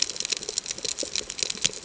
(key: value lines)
label: ambient
recorder: HydroMoth